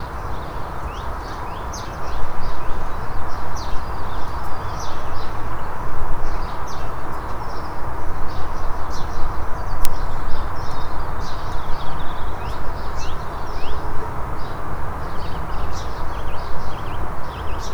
Are people making noise?
no